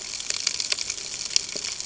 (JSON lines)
{"label": "ambient", "recorder": "HydroMoth"}